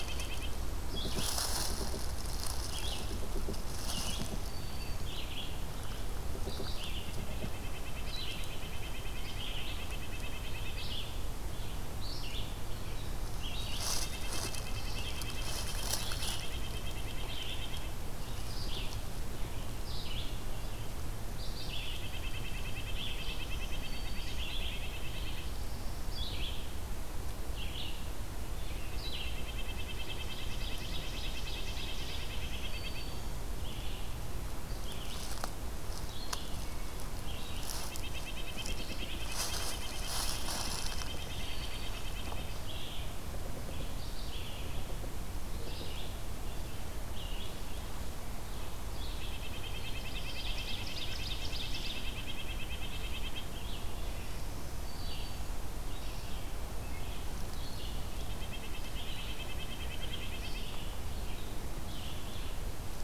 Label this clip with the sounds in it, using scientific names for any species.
Sitta canadensis, Vireo olivaceus, Sphyrapicus varius, Buteo platypterus, Seiurus aurocapilla